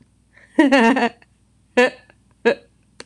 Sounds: Laughter